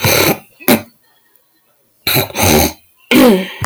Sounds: Throat clearing